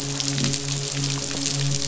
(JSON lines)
{"label": "biophony, midshipman", "recorder": "SoundTrap 500"}